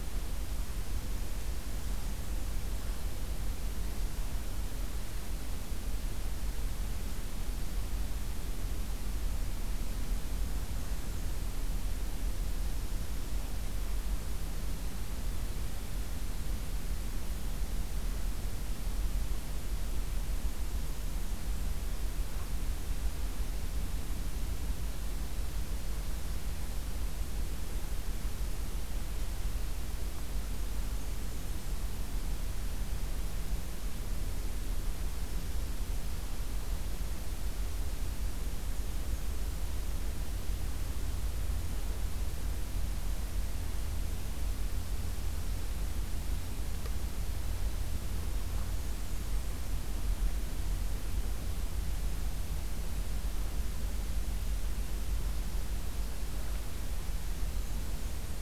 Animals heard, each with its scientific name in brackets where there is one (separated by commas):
Blackburnian Warbler (Setophaga fusca)